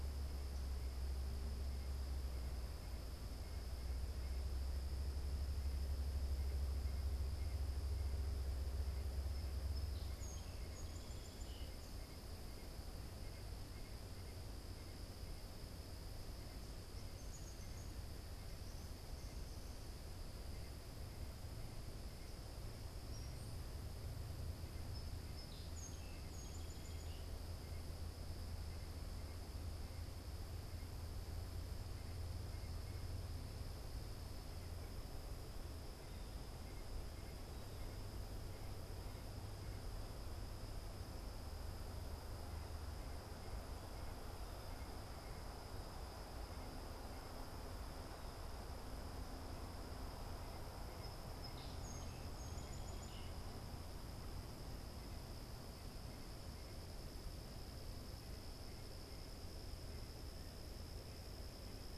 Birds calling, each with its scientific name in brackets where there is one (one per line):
Downy Woodpecker (Dryobates pubescens)
Song Sparrow (Melospiza melodia)